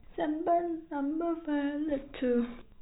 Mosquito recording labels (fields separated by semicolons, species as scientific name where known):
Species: no mosquito; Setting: cup